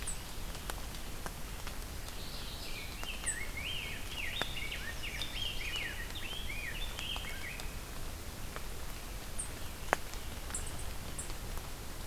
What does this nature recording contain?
Mourning Warbler, Rose-breasted Grosbeak, Chestnut-sided Warbler